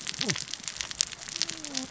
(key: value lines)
label: biophony, cascading saw
recorder: SoundTrap 600 or HydroMoth